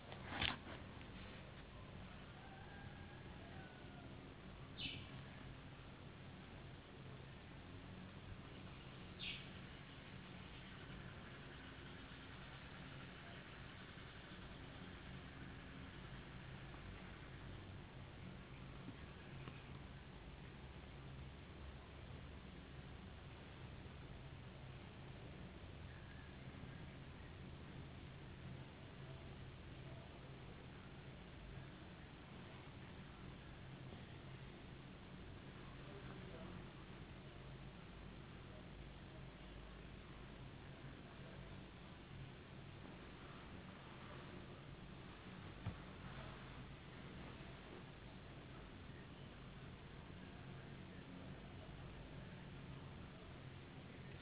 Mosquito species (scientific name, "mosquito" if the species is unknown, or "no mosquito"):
no mosquito